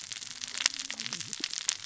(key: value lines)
label: biophony, cascading saw
recorder: SoundTrap 600 or HydroMoth